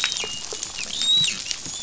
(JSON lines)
{"label": "biophony, dolphin", "recorder": "SoundTrap 500"}